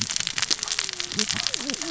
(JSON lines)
{"label": "biophony, cascading saw", "recorder": "SoundTrap 600 or HydroMoth"}